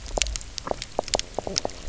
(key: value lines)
label: biophony, knock croak
recorder: SoundTrap 300